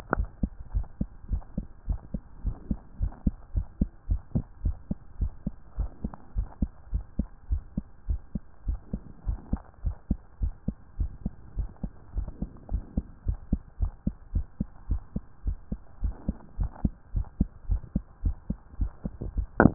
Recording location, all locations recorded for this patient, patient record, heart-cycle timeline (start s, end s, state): mitral valve (MV)
aortic valve (AV)+pulmonary valve (PV)+tricuspid valve (TV)+mitral valve (MV)
#Age: Child
#Sex: Female
#Height: 133.0 cm
#Weight: 24.9 kg
#Pregnancy status: False
#Murmur: Absent
#Murmur locations: nan
#Most audible location: nan
#Systolic murmur timing: nan
#Systolic murmur shape: nan
#Systolic murmur grading: nan
#Systolic murmur pitch: nan
#Systolic murmur quality: nan
#Diastolic murmur timing: nan
#Diastolic murmur shape: nan
#Diastolic murmur grading: nan
#Diastolic murmur pitch: nan
#Diastolic murmur quality: nan
#Outcome: Normal
#Campaign: 2015 screening campaign
0.00	0.17	unannotated
0.17	0.30	S1
0.30	0.40	systole
0.40	0.50	S2
0.50	0.72	diastole
0.72	0.86	S1
0.86	1.00	systole
1.00	1.10	S2
1.10	1.30	diastole
1.30	1.44	S1
1.44	1.55	systole
1.55	1.66	S2
1.66	1.86	diastole
1.86	2.00	S1
2.00	2.10	systole
2.10	2.20	S2
2.20	2.40	diastole
2.40	2.54	S1
2.54	2.68	systole
2.68	2.78	S2
2.78	2.98	diastole
2.98	3.12	S1
3.12	3.22	systole
3.22	3.38	S2
3.38	3.52	diastole
3.52	3.68	S1
3.68	3.78	systole
3.78	3.88	S2
3.88	4.07	diastole
4.07	4.22	S1
4.22	4.35	systole
4.35	4.45	S2
4.45	4.62	diastole
4.62	4.76	S1
4.76	4.88	systole
4.88	4.98	S2
4.98	5.18	diastole
5.18	5.32	S1
5.32	5.44	systole
5.44	5.56	S2
5.56	5.76	diastole
5.76	5.90	S1
5.90	6.02	systole
6.02	6.12	S2
6.12	6.34	diastole
6.34	6.48	S1
6.48	6.58	systole
6.58	6.70	S2
6.70	6.90	diastole
6.90	7.06	S1
7.06	7.16	systole
7.16	7.28	S2
7.28	7.48	diastole
7.48	7.62	S1
7.62	7.74	systole
7.74	7.85	S2
7.85	8.05	diastole
8.05	8.20	S1
8.20	8.33	systole
8.33	8.42	S2
8.42	8.64	diastole
8.64	8.80	S1
8.80	8.91	systole
8.91	9.02	S2
9.02	9.25	diastole
9.25	9.39	S1
9.39	9.51	systole
9.51	9.62	S2
9.62	9.82	diastole
9.82	9.95	S1
9.95	10.06	systole
10.06	10.20	S2
10.20	10.38	diastole
10.38	10.54	S1
10.54	10.64	systole
10.64	10.76	S2
10.76	10.96	diastole
10.96	11.12	S1
11.12	11.24	systole
11.24	11.34	S2
11.34	11.55	diastole
11.55	11.72	S1
11.72	11.82	systole
11.82	11.94	S2
11.94	12.14	diastole
12.14	12.30	S1
12.30	12.39	systole
12.39	12.52	S2
12.52	12.69	diastole
12.69	12.84	S1
12.84	12.96	systole
12.96	13.06	S2
13.06	13.22	diastole
13.22	13.40	S1
13.40	13.48	systole
13.48	13.62	S2
13.62	13.78	diastole
13.78	13.96	S1
13.96	14.05	systole
14.05	14.16	S2
14.16	14.31	diastole
14.31	14.46	S1
14.46	14.56	systole
14.56	14.70	S2
14.70	14.88	diastole
14.88	15.03	S1
15.03	15.14	systole
15.14	15.24	S2
15.24	15.43	diastole
15.43	15.59	S1
15.59	15.68	systole
15.68	15.82	S2
15.82	16.00	diastole
16.00	16.15	S1
16.15	16.25	systole
16.25	16.36	S2
16.36	16.55	diastole
16.55	16.70	S1
16.70	16.81	systole
16.81	16.93	S2
16.93	17.11	diastole
17.11	17.27	S1
17.27	17.36	systole
17.36	17.48	S2
17.48	17.66	diastole
17.66	17.82	S1
17.82	17.92	systole
17.92	18.04	S2
18.04	18.21	diastole
18.21	18.38	S1
18.38	18.47	systole
18.47	18.58	S2
18.58	18.76	diastole
18.76	18.92	S1
18.92	19.03	systole
19.03	19.12	S2
19.12	19.74	unannotated